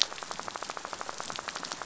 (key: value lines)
label: biophony, rattle
recorder: SoundTrap 500